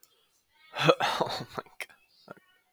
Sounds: Laughter